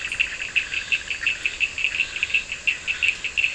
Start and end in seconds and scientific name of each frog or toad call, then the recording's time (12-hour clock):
0.0	3.5	Elachistocleis bicolor
0.0	3.5	Scinax perereca
0.0	3.5	Sphaenorhynchus surdus
1.2	3.5	Boana bischoffi
11:30pm